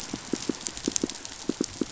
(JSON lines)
{"label": "biophony, pulse", "recorder": "SoundTrap 500"}